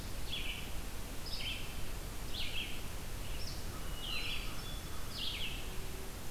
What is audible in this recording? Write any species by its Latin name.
Vireo olivaceus, Corvus brachyrhynchos, Catharus guttatus